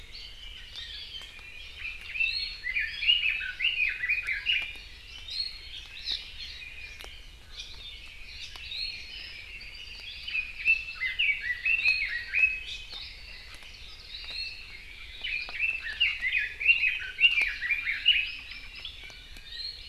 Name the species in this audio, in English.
Red-billed Leiothrix, Iiwi, Apapane, Hawaii Amakihi